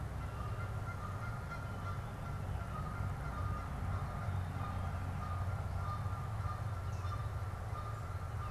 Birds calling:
Canada Goose (Branta canadensis)

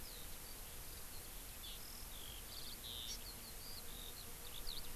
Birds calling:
Eurasian Skylark (Alauda arvensis), Hawaii Amakihi (Chlorodrepanis virens)

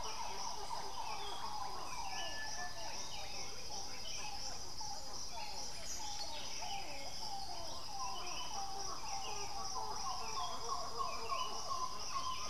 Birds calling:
Buff-throated Saltator (Saltator maximus), Russet-backed Oropendola (Psarocolius angustifrons)

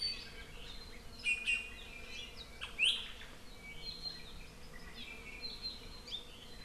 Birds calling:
Iiwi (Drepanis coccinea)

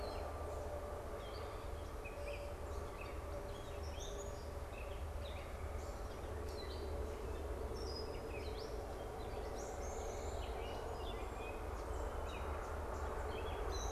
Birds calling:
Gray Catbird (Dumetella carolinensis), Song Sparrow (Melospiza melodia)

